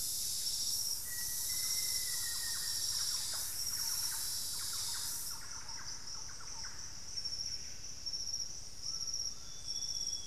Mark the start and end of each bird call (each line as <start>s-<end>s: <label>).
0.0s-8.3s: Buff-breasted Wren (Cantorchilus leucotis)
0.0s-10.3s: White-throated Toucan (Ramphastos tucanus)
0.5s-7.3s: Thrush-like Wren (Campylorhynchus turdinus)
0.9s-3.0s: Black-faced Antthrush (Formicarius analis)
8.9s-10.3s: Amazonian Grosbeak (Cyanoloxia rothschildii)